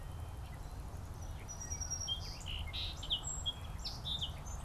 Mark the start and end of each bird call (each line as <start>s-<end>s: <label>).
1.1s-4.6s: Song Sparrow (Melospiza melodia)